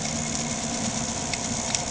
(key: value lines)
label: anthrophony, boat engine
recorder: HydroMoth